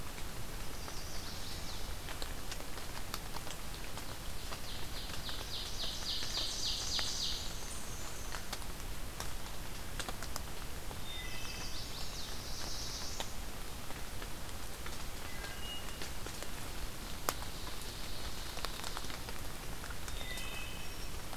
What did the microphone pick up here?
Chestnut-sided Warbler, Ovenbird, Black-and-white Warbler, Wood Thrush, Black-throated Blue Warbler